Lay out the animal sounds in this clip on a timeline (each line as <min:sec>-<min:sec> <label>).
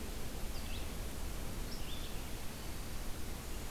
0:00.0-0:03.7 Red-eyed Vireo (Vireo olivaceus)
0:03.2-0:03.7 Brown Creeper (Certhia americana)